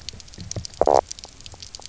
{"label": "biophony, knock croak", "recorder": "SoundTrap 300"}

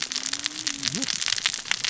{"label": "biophony, cascading saw", "recorder": "SoundTrap 600 or HydroMoth"}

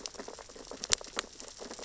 {"label": "biophony, sea urchins (Echinidae)", "recorder": "SoundTrap 600 or HydroMoth"}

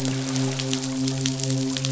{"label": "biophony, midshipman", "recorder": "SoundTrap 500"}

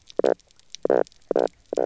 {"label": "biophony, knock croak", "recorder": "SoundTrap 300"}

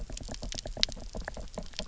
{"label": "biophony", "recorder": "SoundTrap 300"}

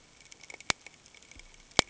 {"label": "ambient", "recorder": "HydroMoth"}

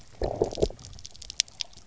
{"label": "biophony, low growl", "recorder": "SoundTrap 300"}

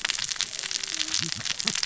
{"label": "biophony, cascading saw", "recorder": "SoundTrap 600 or HydroMoth"}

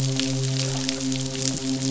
{"label": "biophony, midshipman", "recorder": "SoundTrap 500"}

